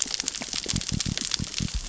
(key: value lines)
label: biophony
recorder: SoundTrap 600 or HydroMoth